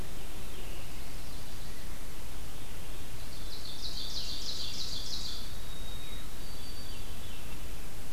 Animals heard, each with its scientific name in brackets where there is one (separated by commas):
Veery (Catharus fuscescens), White-throated Sparrow (Zonotrichia albicollis), Ovenbird (Seiurus aurocapilla)